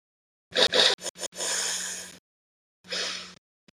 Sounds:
Sniff